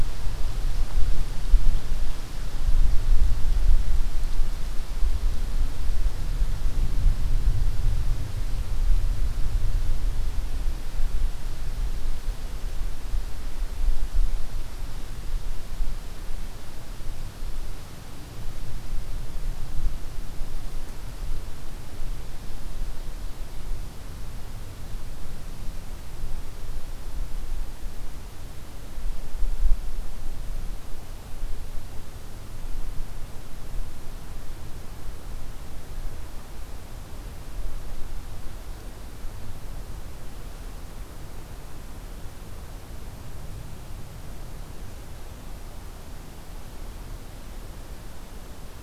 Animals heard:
forest ambience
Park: Marsh-Billings-Rockefeller National Historical Park